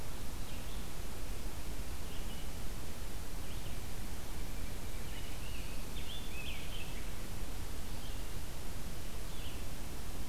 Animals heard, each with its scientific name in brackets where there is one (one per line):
Scarlet Tanager (Piranga olivacea)